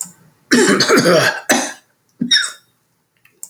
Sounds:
Throat clearing